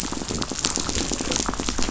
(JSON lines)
{"label": "biophony, rattle", "recorder": "SoundTrap 500"}